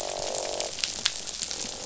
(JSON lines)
{"label": "biophony, croak", "recorder": "SoundTrap 500"}